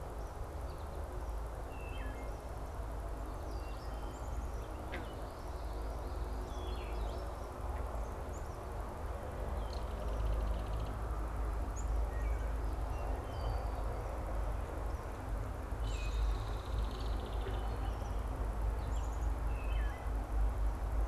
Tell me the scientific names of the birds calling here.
Hylocichla mustelina, Poecile atricapillus, Megaceryle alcyon